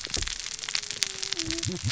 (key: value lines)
label: biophony, cascading saw
recorder: SoundTrap 600 or HydroMoth